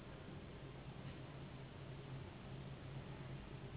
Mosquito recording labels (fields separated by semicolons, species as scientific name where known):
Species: Anopheles gambiae s.s.; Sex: female; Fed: unfed; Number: one; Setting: insect culture